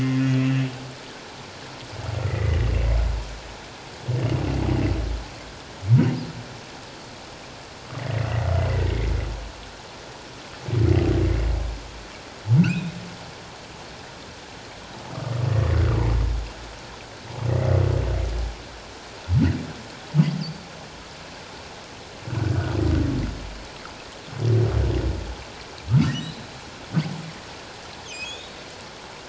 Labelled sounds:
2.2	2.6	humpback whale, 1.8 to 2.2 kHz
8.0	9.1	humpback whale, 1.8 to 2.4 kHz
12.6	12.9	humpback whale, 2.3 to 3.0 kHz
26.0	26.5	humpback whale, 1.8 to 4.1 kHz
28.1	28.6	humpback whale, 2.4 to 3.9 kHz

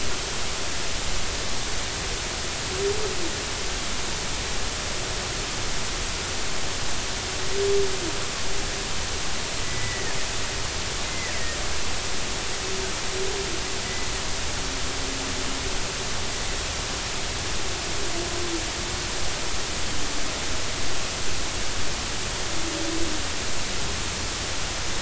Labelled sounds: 9.6	10.2	killer whale, Bigg's (transient), 1.7 to 2.0 kHz
11.0	11.6	killer whale, Bigg's (transient), 1.8 to 2.2 kHz

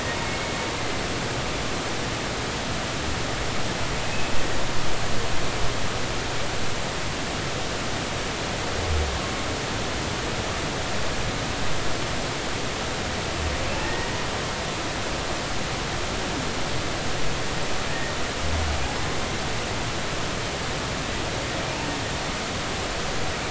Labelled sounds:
0.2	0.5	humpback whale, 2.1 to 2.3 kHz
13.8	14.1	humpback whale, 1.8 to 2.0 kHz

